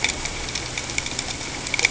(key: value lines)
label: ambient
recorder: HydroMoth